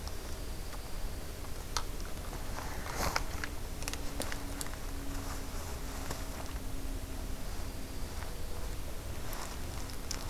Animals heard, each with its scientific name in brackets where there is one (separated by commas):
Dark-eyed Junco (Junco hyemalis)